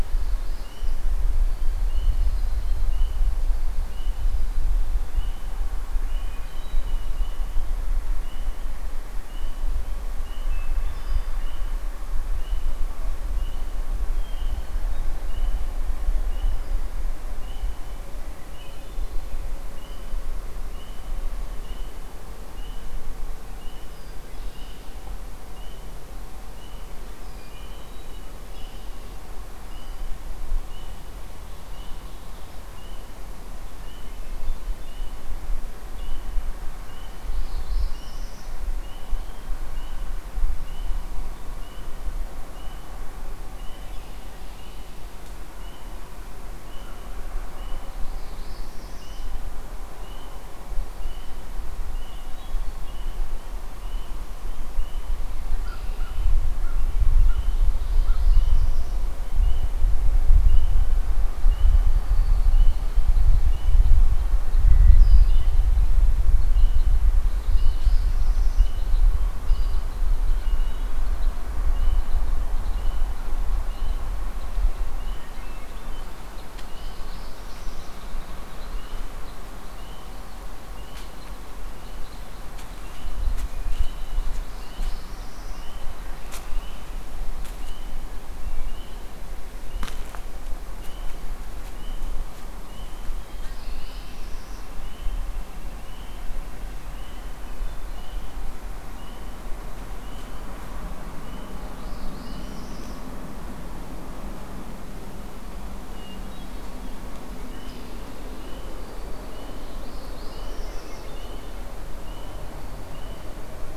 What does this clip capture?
Northern Parula, Red-winged Blackbird, Hermit Thrush, Ovenbird, American Crow, Red Crossbill